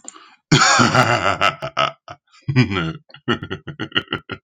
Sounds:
Laughter